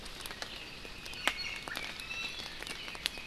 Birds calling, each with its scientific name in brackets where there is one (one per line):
Iiwi (Drepanis coccinea)